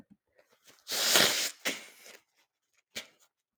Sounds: Sneeze